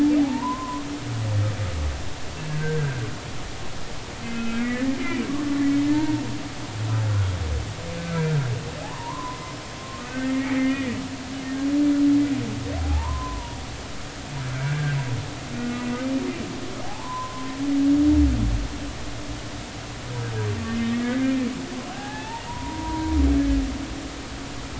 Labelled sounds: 0.2	0.8	humpback whale, 0.80 to 1.2 kHz
2.6	3.0	humpback whale, 1.5 to 1.7 kHz
4.2	5.5	humpback whale, 1.0 to 3.1 kHz
5.9	6.2	humpback whale, 0.86 to 1.9 kHz
8.8	10.9	humpback whale, 0.80 to 2.3 kHz
12.8	15.0	humpback whale, 0.80 to 1.7 kHz
15.6	15.9	humpback whale, 2.6 to 2.7 kHz
16.8	17.5	humpback whale, 0.80 to 1.1 kHz
20.8	23.2	humpback whale, 0.80 to 2.0 kHz

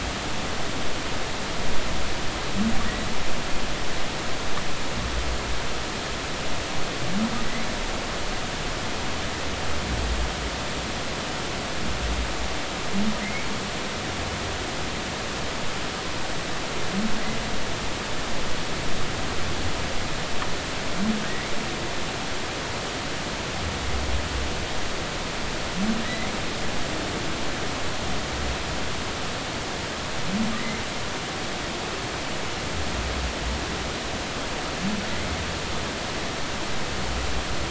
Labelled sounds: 21.3	21.5	humpback whale, 1.8 to 2.3 kHz
26.0	26.3	humpback whale, 1.8 to 2.2 kHz
30.6	30.8	humpback whale, 1.9 to 2.1 kHz

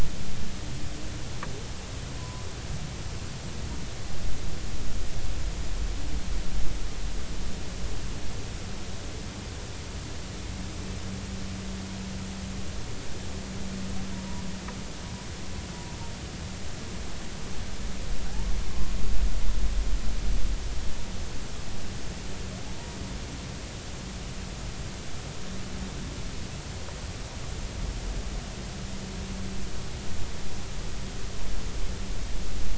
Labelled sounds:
2.1	2.5	humpback whale, 0.93 to 1.1 kHz
18.3	18.9	humpback whale, 0.80 to 1.2 kHz

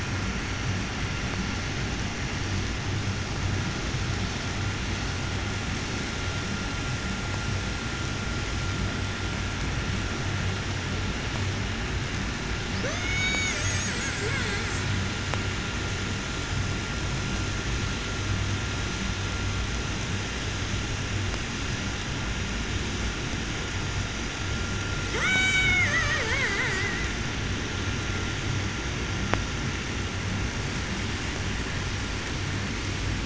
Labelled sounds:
12.5	15.3	killer whale, 0.04 to 8.0 kHz
24.9	27.2	killer whale, 0 to 8.0 kHz

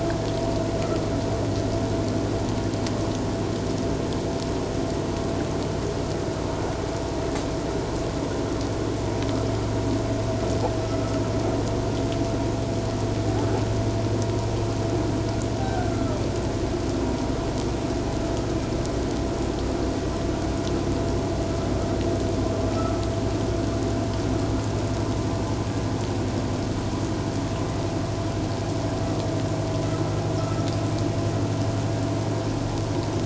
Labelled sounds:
10.8	11.2	vessel noise, 1.2 to 1.4 kHz
15.6	16.2	humpback whale, 1.2 to 1.6 kHz
22.7	23.0	vessel noise, 1.2 to 1.4 kHz

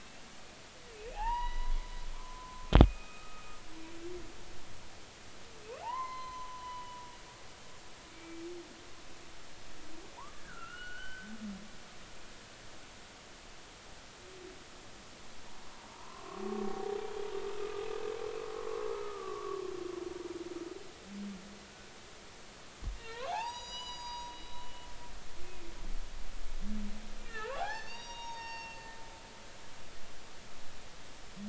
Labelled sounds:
1.1	1.8	humpback whale, 0.80 to 4.0 kHz
2.1	3.5	humpback whale, 0.99 to 2.6 kHz
5.8	7.0	humpback whale, 0.80 to 6.2 kHz
8.1	8.4	humpback whale, 2.2 to 2.4 kHz
10.1	11.3	humpback whale, 0.80 to 4.4 kHz
16.6	17.4	humpback whale, 0.80 to 1.2 kHz
18.9	19.6	humpback whale, 1.1 to 1.4 kHz
23.0	24.7	humpback whale, 0.80 to 7.9 kHz
25.4	25.7	humpback whale, 2.4 to 2.6 kHz
27.3	28.8	humpback whale, 0.80 to 6.7 kHz

